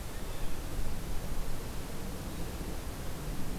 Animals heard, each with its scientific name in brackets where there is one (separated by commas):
Blue Jay (Cyanocitta cristata)